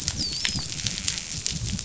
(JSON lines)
{"label": "biophony, dolphin", "recorder": "SoundTrap 500"}